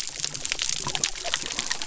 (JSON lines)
{"label": "biophony", "recorder": "SoundTrap 300"}